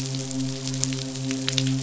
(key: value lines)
label: biophony, midshipman
recorder: SoundTrap 500